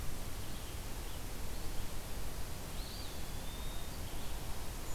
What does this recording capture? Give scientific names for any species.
Vireo olivaceus, Contopus virens